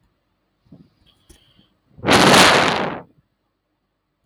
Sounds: Sigh